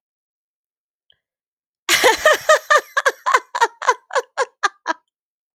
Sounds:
Laughter